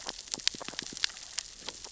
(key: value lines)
label: biophony, grazing
recorder: SoundTrap 600 or HydroMoth